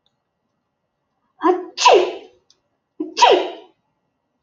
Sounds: Sneeze